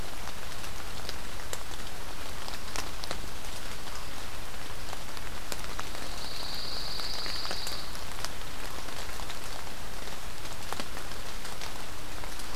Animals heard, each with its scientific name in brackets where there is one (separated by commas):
Pine Warbler (Setophaga pinus)